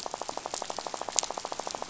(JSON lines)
{"label": "biophony, rattle", "recorder": "SoundTrap 500"}